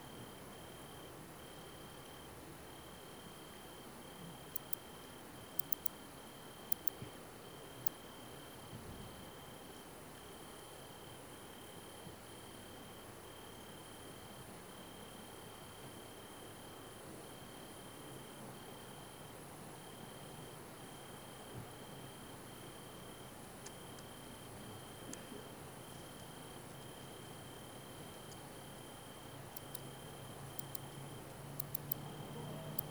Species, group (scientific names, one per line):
Barbitistes serricauda
Orthoptera